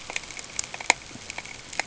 {"label": "ambient", "recorder": "HydroMoth"}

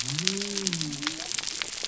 {"label": "biophony", "recorder": "SoundTrap 300"}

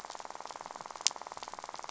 {"label": "biophony, rattle", "recorder": "SoundTrap 500"}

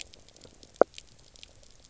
{"label": "biophony, knock croak", "recorder": "SoundTrap 300"}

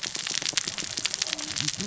{"label": "biophony, cascading saw", "recorder": "SoundTrap 600 or HydroMoth"}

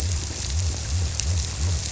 {"label": "biophony", "recorder": "SoundTrap 300"}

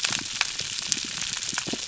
{"label": "biophony", "recorder": "SoundTrap 300"}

